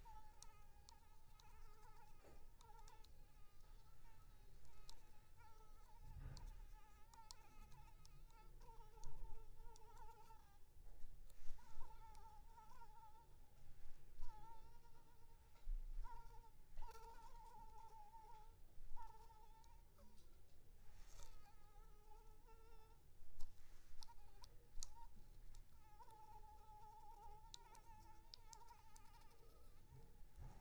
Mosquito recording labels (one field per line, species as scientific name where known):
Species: Anopheles arabiensis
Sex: female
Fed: unfed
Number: one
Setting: cup